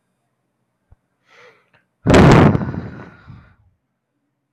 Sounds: Sigh